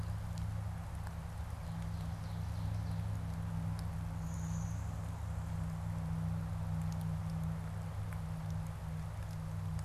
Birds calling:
Ovenbird (Seiurus aurocapilla), Blue-winged Warbler (Vermivora cyanoptera)

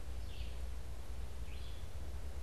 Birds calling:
Red-eyed Vireo (Vireo olivaceus)

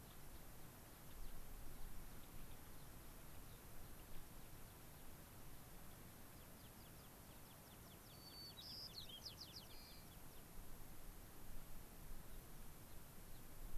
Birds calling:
American Pipit (Anthus rubescens), White-crowned Sparrow (Zonotrichia leucophrys), Gray-crowned Rosy-Finch (Leucosticte tephrocotis)

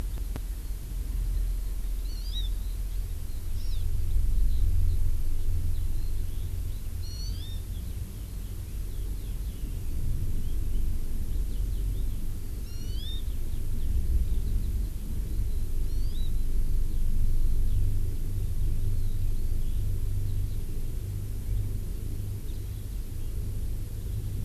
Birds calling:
Eurasian Skylark (Alauda arvensis), Hawaii Amakihi (Chlorodrepanis virens)

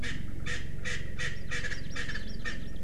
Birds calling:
Hawaii Amakihi (Chlorodrepanis virens), Erckel's Francolin (Pternistis erckelii)

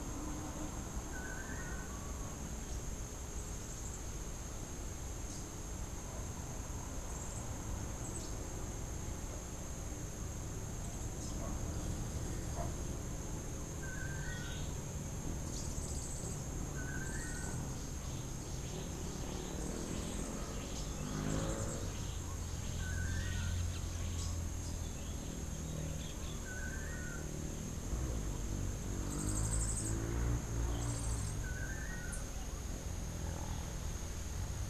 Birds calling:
Cabanis's Wren (Cantorchilus modestus), Rufous-capped Warbler (Basileuterus rufifrons), Crimson-fronted Parakeet (Psittacara finschi), Long-tailed Manakin (Chiroxiphia linearis), Yellow-faced Grassquit (Tiaris olivaceus)

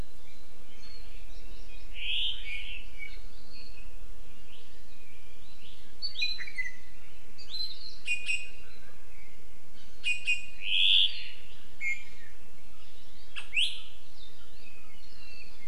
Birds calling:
Apapane (Himatione sanguinea)

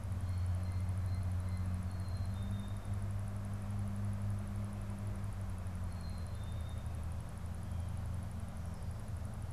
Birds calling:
Blue Jay (Cyanocitta cristata), Black-capped Chickadee (Poecile atricapillus)

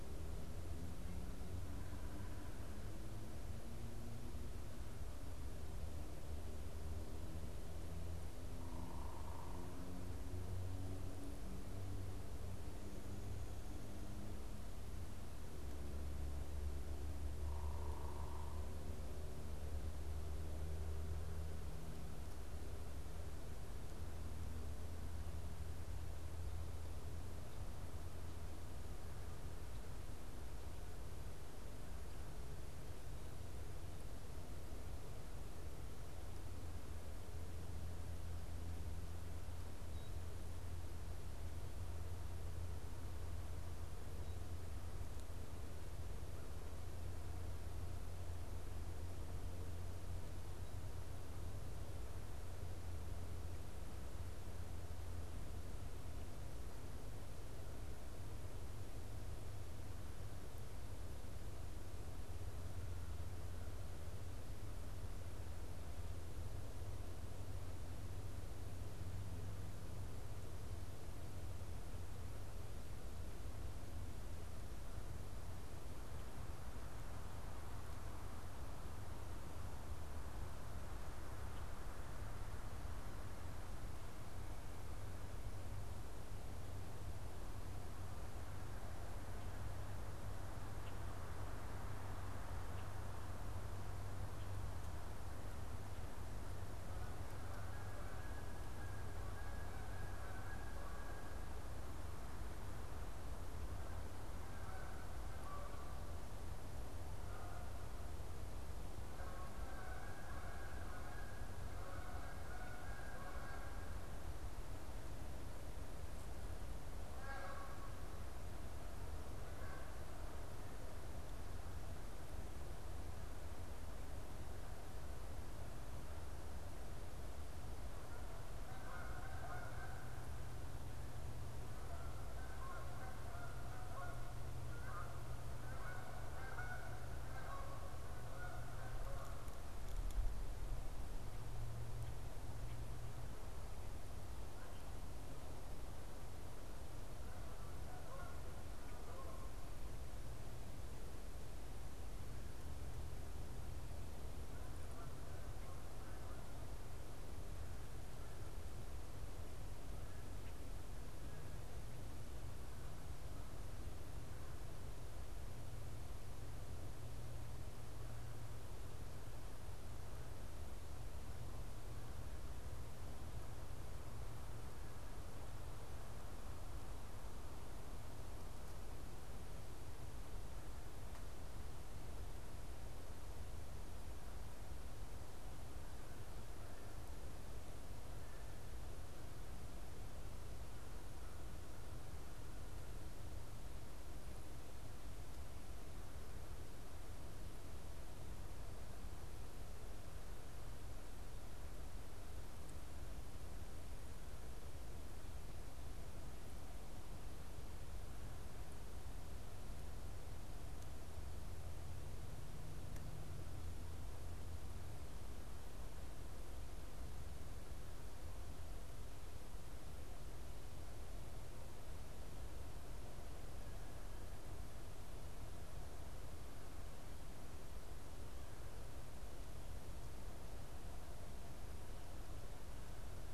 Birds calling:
Blue Jay (Cyanocitta cristata), Red-winged Blackbird (Agelaius phoeniceus), unidentified bird, Canada Goose (Branta canadensis)

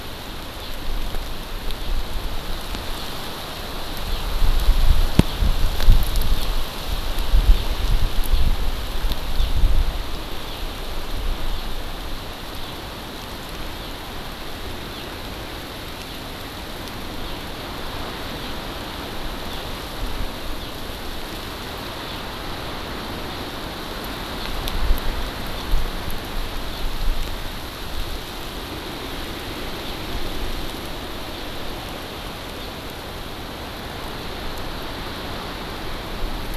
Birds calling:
House Finch (Haemorhous mexicanus)

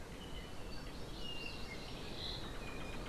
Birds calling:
Hawaii Amakihi (Chlorodrepanis virens), Apapane (Himatione sanguinea)

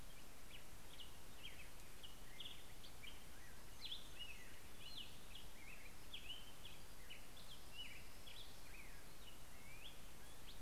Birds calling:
Orange-crowned Warbler (Leiothlypis celata), Black-headed Grosbeak (Pheucticus melanocephalus), Hermit Warbler (Setophaga occidentalis)

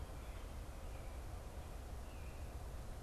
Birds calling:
American Robin (Turdus migratorius)

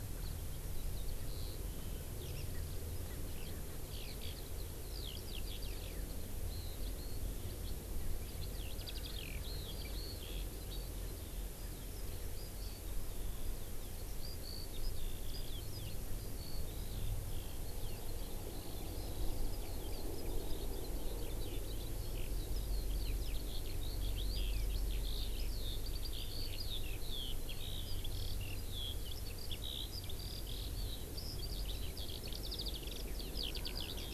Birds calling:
Eurasian Skylark (Alauda arvensis), Erckel's Francolin (Pternistis erckelii)

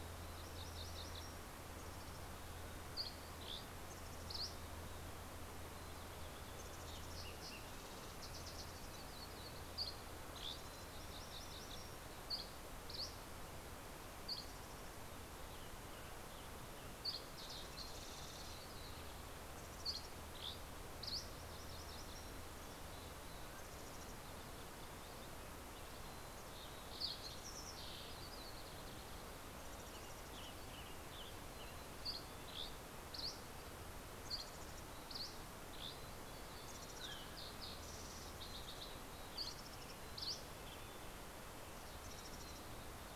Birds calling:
MacGillivray's Warbler (Geothlypis tolmiei), Dusky Flycatcher (Empidonax oberholseri), Fox Sparrow (Passerella iliaca), Mountain Chickadee (Poecile gambeli), Mountain Quail (Oreortyx pictus), Western Tanager (Piranga ludoviciana), Yellow-rumped Warbler (Setophaga coronata), Red-breasted Nuthatch (Sitta canadensis)

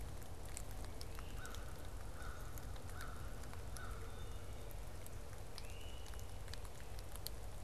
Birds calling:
Great Crested Flycatcher (Myiarchus crinitus), American Crow (Corvus brachyrhynchos)

